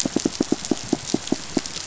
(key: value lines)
label: biophony, knock
recorder: SoundTrap 500